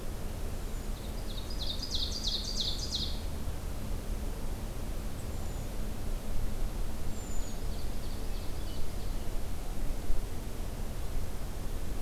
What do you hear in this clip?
Hermit Thrush, Ovenbird